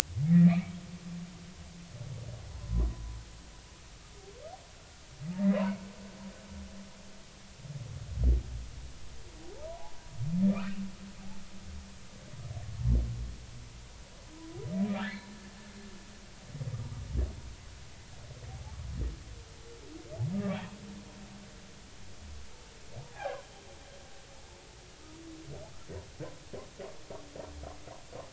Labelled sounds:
0.2	0.8	humpback whale, 1.7 to 2.7 kHz
2.5	2.9	humpback whale, 0.93 to 1.2 kHz
5.3	5.6	humpback whale, 1.8 to 2.0 kHz
9.7	10.8	humpback whale, 0.80 to 2.9 kHz
15.0	15.3	humpback whale, 1.3 to 1.8 kHz
20.3	20.6	humpback whale, 1.1 to 1.2 kHz
23.1	23.4	humpback whale, 0.80 to 1.7 kHz

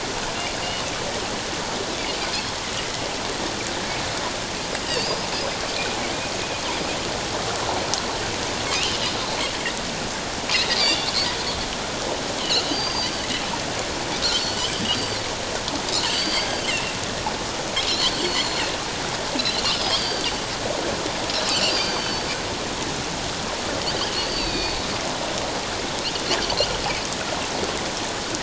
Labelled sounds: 4.8	5.3	Pacific white-sided dolphin, 2.6 to 5.2 kHz
8.7	9.0	Pacific white-sided dolphin, 2.4 to 3.2 kHz
10.7	11.1	Pacific white-sided dolphin, 3.4 to 5.0 kHz
12.4	13.3	Pacific white-sided dolphin, 2.7 to 6.4 kHz
14.7	17.0	Pacific white-sided dolphin, 2.6 to 4.8 kHz
18.1	18.7	Pacific white-sided dolphin, 4.2 to 7.3 kHz
19.4	20.4	Pacific white-sided dolphin, 3.0 to 5.3 kHz
21.5	22.3	Pacific white-sided dolphin, 2.4 to 5.0 kHz
23.8	24.8	Pacific white-sided dolphin, 2.4 to 5.1 kHz

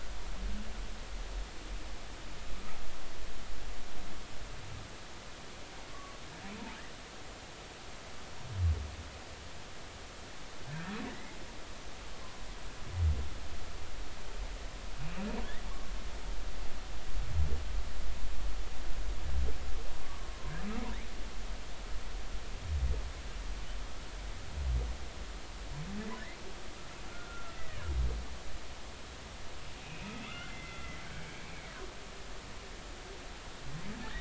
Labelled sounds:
5.9	6.2	humpback whale, 1.1 to 1.2 kHz
10.7	11.3	humpback whale, 1.5 to 2.2 kHz
20.0	20.3	humpback whale, 1.0 to 1.2 kHz
27.0	27.9	humpback whale, 1.3 to 2.0 kHz
29.8	31.7	humpback whale, 1.1 to 2.7 kHz

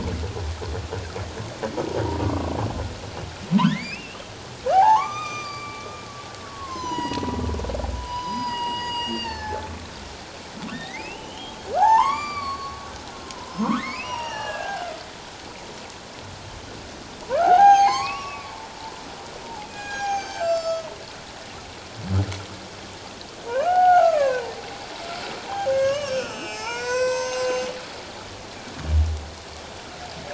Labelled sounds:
2.1	2.5	humpback whale, 1.0 to 1.2 kHz
3.6	4.3	humpback whale, 1.3 to 3.3 kHz
4.7	5.9	humpback whale, 0.78 to 6.2 kHz
6.4	7.4	humpback whale, 0.88 to 7.1 kHz
8.0	9.7	humpback whale, 0.78 to 5.4 kHz
10.7	12.8	humpback whale, 0.78 to 6.8 kHz
13.2	14.9	humpback whale, 0.78 to 5.8 kHz
17.2	18.5	humpback whale, 0.78 to 6.5 kHz
19.6	20.9	humpback whale, 0.78 to 7.6 kHz
23.6	24.5	humpback whale, 0.78 to 3.0 kHz
25.5	27.7	humpback whale, 0.81 to 7.9 kHz

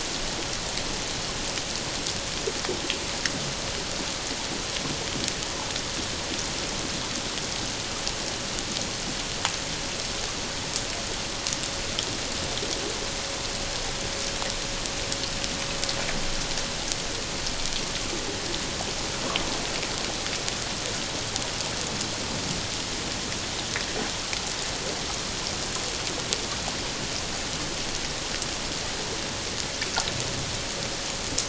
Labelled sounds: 5.4	5.7	water noise, 0.81 to 1.1 kHz

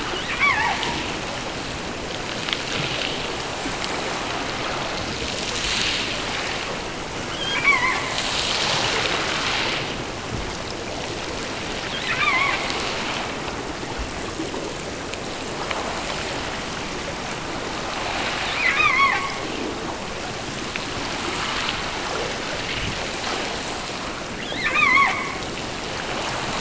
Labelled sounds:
0.2	0.8	killer whale, offshore, 0.57 to 5.9 kHz
7.3	8.2	killer whale, offshore, 0.70 to 5.1 kHz
11.8	12.7	killer whale, offshore, 0.84 to 4.2 kHz
18.5	19.7	killer whale, offshore, 0.70 to 6.5 kHz
24.4	25.5	killer whale, offshore, 0.57 to 6.6 kHz

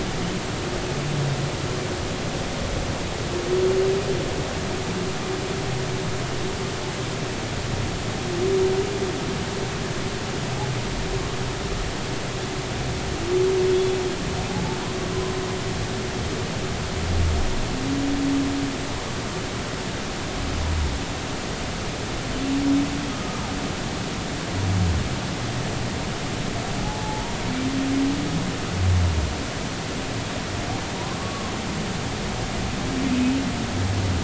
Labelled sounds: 23.1	23.4	humpback whale, 1.2 to 1.3 kHz
26.8	27.4	humpback whale, 0.80 to 0.99 kHz
31.2	31.5	humpback whale, 0.99 to 1.2 kHz
33.1	33.4	humpback whale, 2.5 to 2.6 kHz

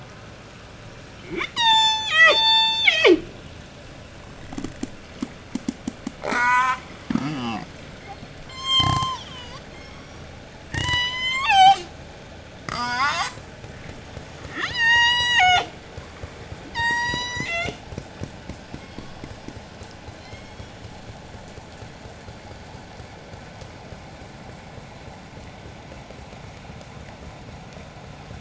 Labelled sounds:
1.1	3.5	killer whale, J pod, call S03, 0.13 to 8.0 kHz
6.2	7.7	killer whale, J pod, 0.08 to 8.0 kHz
8.4	10.3	killer whale, J pod, 0.85 to 8.0 kHz
10.5	12.0	killer whale, J pod, call S03, 0.47 to 8.0 kHz
12.6	13.5	killer whale, J pod, 0.15 to 8.0 kHz
14.4	15.8	killer whale, J pod, call S03, 0.39 to 8.0 kHz
16.5	17.9	killer whale, J pod, call S03, 0.44 to 8.0 kHz
18.6	20.9	killer whale, J pod, 1.8 to 8.0 kHz

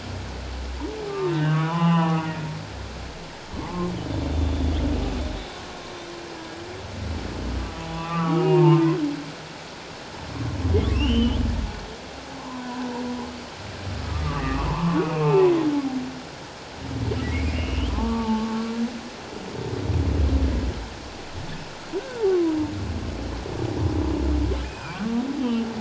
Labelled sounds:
1.1	2.3	humpback whale, 0.78 to 3.8 kHz
3.6	3.9	humpback whale, 0.81 to 1.2 kHz
4.3	4.8	humpback whale, 2.9 to 3.7 kHz
7.9	8.8	humpback whale, 0.84 to 3.6 kHz
10.9	11.4	humpback whale, 2.5 to 3.2 kHz
12.3	12.8	humpback whale, 0.78 to 1.1 kHz
14.0	15.5	humpback whale, 0.81 to 1.4 kHz
17.2	18.8	humpback whale, 0.81 to 3.4 kHz
21.9	22.6	humpback whale, 0.94 to 1.6 kHz
24.6	25.0	humpback whale, 2.3 to 2.6 kHz
25.4	25.7	humpback whale, 2.9 to 3.2 kHz

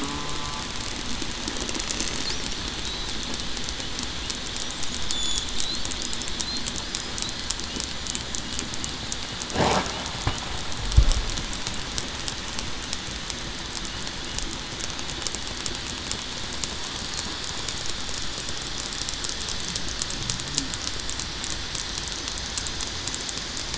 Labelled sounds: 0.0	0.4	killer whale, southern resident, 0.96 to 1.1 kHz
5.1	5.5	killer whale, southern resident, 3.3 to 3.6 kHz

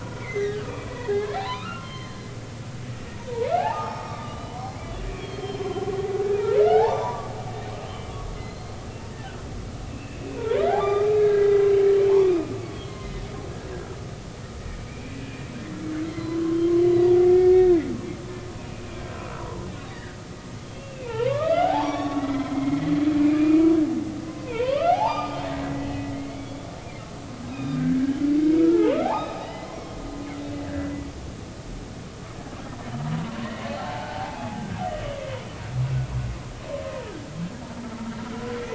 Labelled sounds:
0.0	2.3	humpback whale, 0.80 to 6.3 kHz
3.1	4.5	humpback whale, 0.80 to 1.9 kHz
5.2	5.9	humpback whale, 2.8 to 5.3 kHz
6.6	7.3	humpback whale, 0.80 to 3.6 kHz
7.9	8.8	humpback whale, 2.9 to 4.3 kHz
9.9	12.5	humpback whale, 0.80 to 3.7 kHz
12.9	13.2	humpback whale, 2.0 to 2.2 kHz
14.9	15.4	humpback whale, 2.2 to 2.6 kHz
16.1	16.7	humpback whale, 0.96 to 4.3 kHz
17.3	17.8	humpback whale, 1.8 to 1.9 kHz
19.4	23.6	humpback whale, 0.80 to 5.9 kHz
24.3	26.6	humpback whale, 0.80 to 5.0 kHz
27.5	28.0	humpback whale, 1.4 to 3.9 kHz
28.5	30.0	humpback whale, 0.80 to 5.8 kHz
30.6	30.9	humpback whale, 1.5 to 1.9 kHz
33.7	34.8	humpback whale, 0.80 to 1.7 kHz

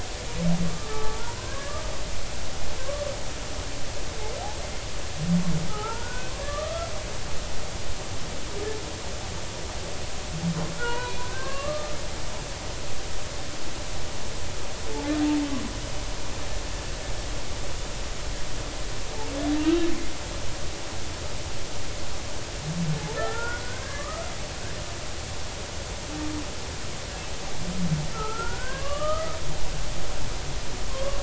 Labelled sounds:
0.7	3.0	humpback whale, 0.83 to 1.8 kHz
5.7	6.9	humpback whale, 0.80 to 1.6 kHz
10.8	11.9	humpback whale, 0.90 to 3.0 kHz
23.2	24.1	humpback whale, 1.3 to 1.9 kHz
24.9	25.3	humpback whale, 1.1 to 1.3 kHz
28.1	29.4	humpback whale, 0.99 to 3.2 kHz
30.9	31.2	humpback whale, 0.99 to 1.2 kHz

